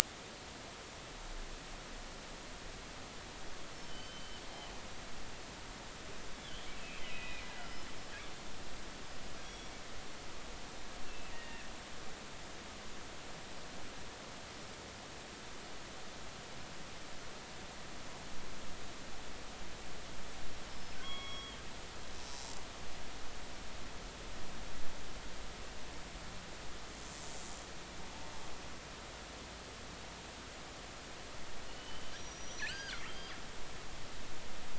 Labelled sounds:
3.8	4.4	killer whale, northern resident, G clan, GG subclan, call N23ii, 2.8 to 3.2 kHz
6.3	7.4	killer whale, northern resident, G clan, 2.3 to 3.6 kHz
9.4	9.7	killer whale, northern resident, G clan, 3.2 to 5.8 kHz
11.0	11.7	killer whale, northern resident, G clan, 1.7 to 2.9 kHz
20.7	21.6	killer whale, northern resident, G clan, GI subclan, call N23i, 1.0 to 5.6 kHz
31.7	33.0	killer whale, northern resident, G clan, call N23i, 1.3 to 8.0 kHz
33.1	33.3	killer whale, northern resident, G clan, GG subclan, call N28, 3.0 to 3.3 kHz

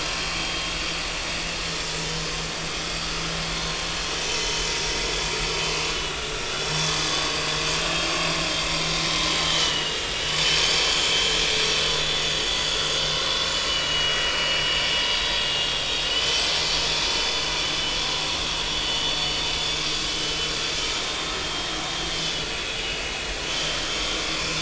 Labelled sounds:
4.2	4.7	vessel noise, 3.0 to 3.1 kHz
5.9	6.3	vessel noise, 2.8 to 3.0 kHz
9.4	10.8	vessel noise, 2.8 to 3.2 kHz
11.1	11.4	vessel noise, 3.0 to 3.1 kHz
11.9	12.2	vessel noise, 3.4 to 3.6 kHz
13.6	16.5	vessel noise, 2.8 to 5.4 kHz
17.2	17.4	vessel noise, 3.4 to 3.6 kHz
18.9	19.1	vessel noise, 2.9 to 3.0 kHz
21.0	21.7	vessel noise, 3.1 to 3.7 kHz
22.8	23.0	vessel noise, 2.8 to 2.9 kHz
23.5	24.6	vessel noise, 2.3 to 3.2 kHz

